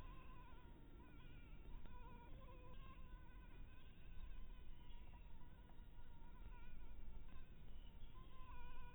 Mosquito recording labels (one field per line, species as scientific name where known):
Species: Anopheles harrisoni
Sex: female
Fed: blood-fed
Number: one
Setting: cup